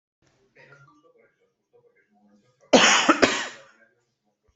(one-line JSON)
{"expert_labels": [{"quality": "ok", "cough_type": "dry", "dyspnea": false, "wheezing": false, "stridor": false, "choking": false, "congestion": false, "nothing": true, "diagnosis": "upper respiratory tract infection", "severity": "unknown"}], "age": 40, "gender": "male", "respiratory_condition": false, "fever_muscle_pain": false, "status": "symptomatic"}